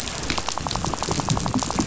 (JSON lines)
{"label": "biophony, rattle", "recorder": "SoundTrap 500"}